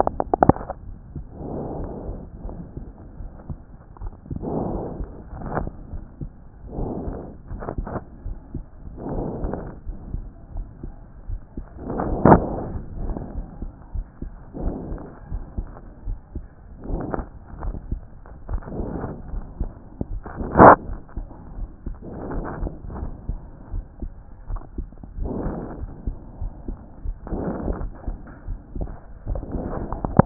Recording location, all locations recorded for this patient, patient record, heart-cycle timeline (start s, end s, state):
aortic valve (AV)
aortic valve (AV)+tricuspid valve (TV)+mitral valve (MV)
#Age: Adolescent
#Sex: Male
#Height: 150.0 cm
#Weight: 38.5 kg
#Pregnancy status: False
#Murmur: Absent
#Murmur locations: nan
#Most audible location: nan
#Systolic murmur timing: nan
#Systolic murmur shape: nan
#Systolic murmur grading: nan
#Systolic murmur pitch: nan
#Systolic murmur quality: nan
#Diastolic murmur timing: nan
#Diastolic murmur shape: nan
#Diastolic murmur grading: nan
#Diastolic murmur pitch: nan
#Diastolic murmur quality: nan
#Outcome: Abnormal
#Campaign: 2014 screening campaign
0.00	21.58	unannotated
21.58	21.68	S1
21.68	21.86	systole
21.86	21.96	S2
21.96	22.32	diastole
22.32	22.46	S1
22.46	22.60	systole
22.60	22.70	S2
22.70	23.00	diastole
23.00	23.12	S1
23.12	23.28	systole
23.28	23.40	S2
23.40	23.72	diastole
23.72	23.84	S1
23.84	24.02	systole
24.02	24.12	S2
24.12	24.50	diastole
24.50	24.62	S1
24.62	24.78	systole
24.78	24.86	S2
24.86	25.18	diastole
25.18	25.32	S1
25.32	25.44	systole
25.44	25.56	S2
25.56	25.80	diastole
25.80	25.92	S1
25.92	26.06	systole
26.06	26.16	S2
26.16	26.40	diastole
26.40	26.52	S1
26.52	26.68	systole
26.68	26.78	S2
26.78	27.04	diastole
27.04	27.16	S1
27.16	27.30	systole
27.30	27.44	S2
27.44	27.68	diastole
27.68	30.26	unannotated